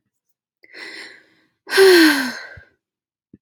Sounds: Sigh